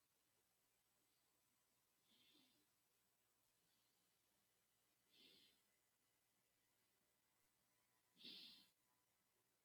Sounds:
Sigh